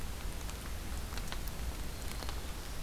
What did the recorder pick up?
Black-throated Green Warbler